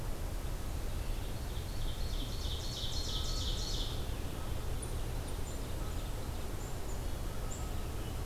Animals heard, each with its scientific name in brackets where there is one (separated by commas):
Black-capped Chickadee (Poecile atricapillus), Ovenbird (Seiurus aurocapilla)